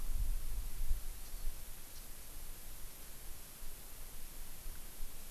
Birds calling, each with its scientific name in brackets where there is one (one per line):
Japanese Bush Warbler (Horornis diphone)